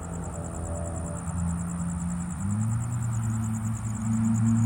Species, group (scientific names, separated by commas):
Gryllodes sigillatus, Orthoptera